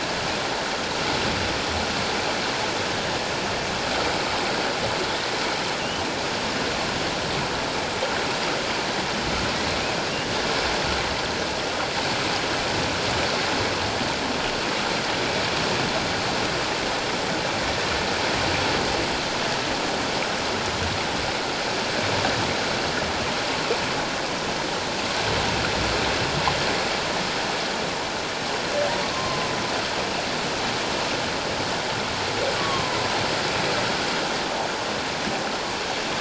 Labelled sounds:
29.0	29.5	humpback whale, 0.97 to 1.2 kHz
32.6	33.0	humpback whale, 0.94 to 1.2 kHz

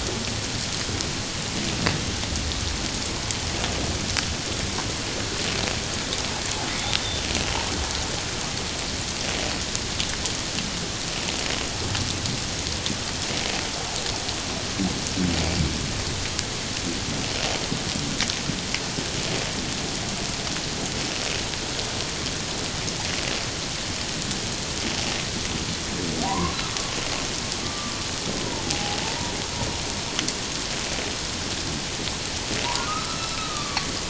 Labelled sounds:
7.0	7.2	humpback whale, 3.5 to 3.7 kHz
26.2	26.6	humpback whale, 0.91 to 1.2 kHz
27.6	27.9	humpback whale, 1.1 to 1.2 kHz
28.7	29.0	humpback whale, 0.78 to 0.88 kHz
32.6	33.9	humpback whale, 0.88 to 1.4 kHz

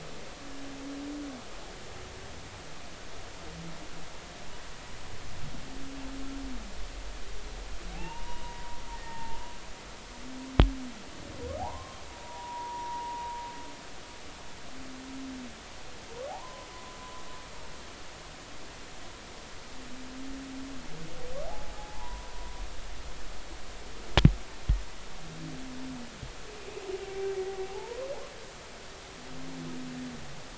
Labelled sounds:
7.9	9.4	humpback whale, 0.80 to 2.9 kHz
11.6	13.4	humpback whale, 0.80 to 1.2 kHz
16.3	17.0	humpback whale, 0.80 to 1.1 kHz
21.5	22.3	humpback whale, 0.80 to 1.2 kHz
27.7	28.1	humpback whale, 0.80 to 1.1 kHz

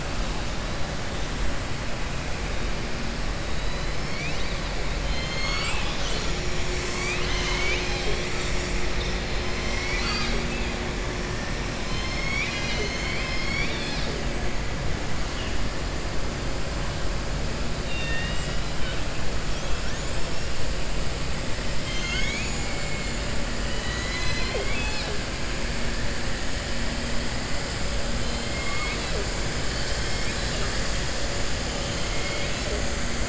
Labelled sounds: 9.6	10.4	killer whale, southern resident, 1.2 to 6.0 kHz
17.8	18.6	killer whale, southern resident, 1.8 to 5.1 kHz
21.7	23.2	killer whale, southern resident, 1.5 to 7.3 kHz
23.6	25.1	killer whale, southern resident, 0.43 to 6.6 kHz
28.4	29.1	killer whale, southern resident, 1.0 to 4.4 kHz
32.0	32.7	killer whale, southern resident, 1.9 to 6.1 kHz

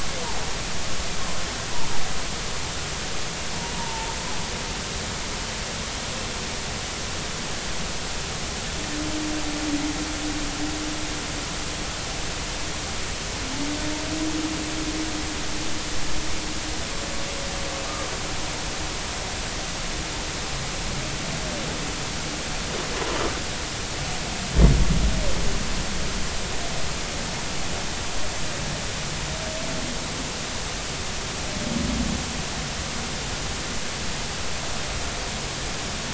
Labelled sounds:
3.7	4.2	humpback whale, 0.83 to 1.0 kHz

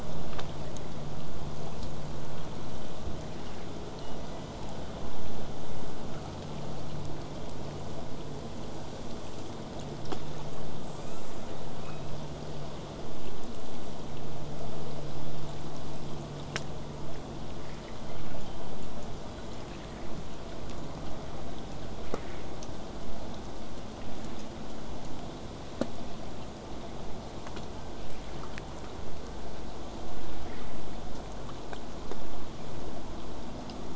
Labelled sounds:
4.0	4.7	killer whale, southern resident, 1.7 to 6.2 kHz
10.9	11.4	killer whale, southern resident, 1.0 to 7.5 kHz
11.8	12.2	killer whale, southern resident, 1.1 to 3.9 kHz
17.8	18.6	killer whale, southern resident, call S01, 0.46 to 4.3 kHz
19.3	19.7	killer whale, southern resident, 1.3 to 4.2 kHz

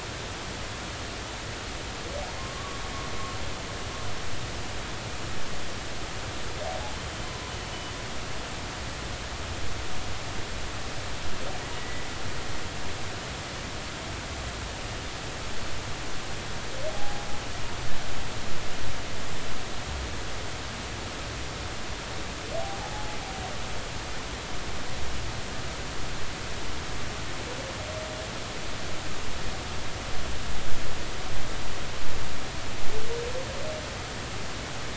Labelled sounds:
2.4	2.8	humpback whale, 1.0 to 1.2 kHz
11.8	12.0	humpback whale, 1.9 to 2.0 kHz
16.9	17.2	humpback whale, 0.80 to 0.86 kHz
22.8	23.1	humpback whale, 0.80 to 0.90 kHz

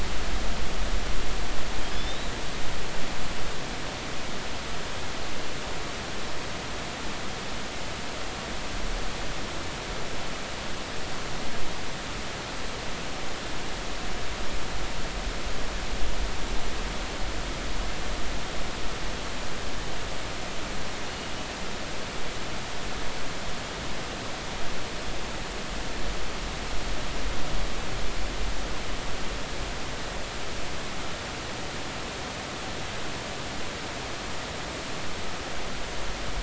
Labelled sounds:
1.9	2.3	killer whale, northern resident, 3.3 to 4.0 kHz

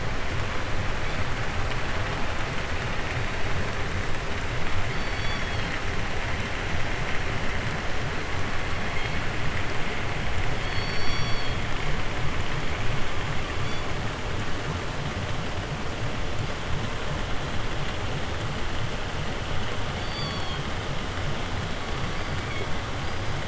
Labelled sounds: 0.9	1.3	killer whale, 1.3 to 5.2 kHz
4.8	5.9	killer whale, southern resident, 0.71 to 7.5 kHz
8.8	9.2	killer whale, 1.1 to 4.8 kHz
10.6	11.7	killer whale, southern resident, call S16, 0.75 to 7.1 kHz
13.5	14.0	killer whale, 1.3 to 7.3 kHz
19.9	20.8	killer whale, southern resident, 0.67 to 7.5 kHz
21.4	23.4	killer whale, 1.5 to 5.2 kHz

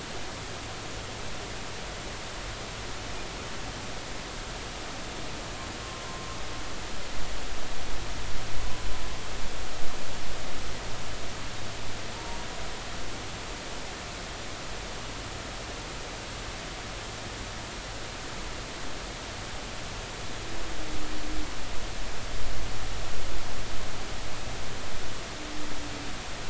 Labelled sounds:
6.0	6.3	humpback whale, 0.96 to 1.1 kHz
12.1	12.4	humpback whale, 0.86 to 1.0 kHz

